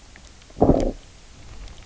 {"label": "biophony, low growl", "recorder": "SoundTrap 300"}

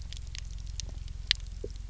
{"label": "anthrophony, boat engine", "recorder": "SoundTrap 300"}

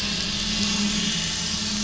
{"label": "anthrophony, boat engine", "recorder": "SoundTrap 500"}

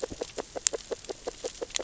{"label": "biophony, grazing", "recorder": "SoundTrap 600 or HydroMoth"}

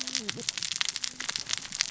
{"label": "biophony, cascading saw", "recorder": "SoundTrap 600 or HydroMoth"}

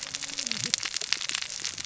{"label": "biophony, cascading saw", "recorder": "SoundTrap 600 or HydroMoth"}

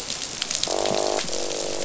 {"label": "biophony, croak", "recorder": "SoundTrap 500"}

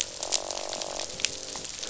{"label": "biophony, croak", "recorder": "SoundTrap 500"}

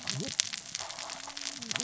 {"label": "biophony, cascading saw", "recorder": "SoundTrap 600 or HydroMoth"}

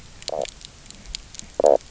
{"label": "biophony, knock croak", "recorder": "SoundTrap 300"}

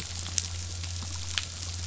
{"label": "anthrophony, boat engine", "recorder": "SoundTrap 500"}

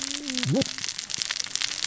{"label": "biophony, cascading saw", "recorder": "SoundTrap 600 or HydroMoth"}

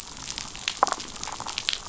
{"label": "biophony, damselfish", "recorder": "SoundTrap 500"}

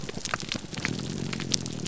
{"label": "biophony, grouper groan", "recorder": "SoundTrap 300"}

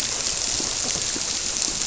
{"label": "biophony", "recorder": "SoundTrap 300"}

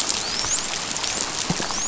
{"label": "biophony, dolphin", "recorder": "SoundTrap 500"}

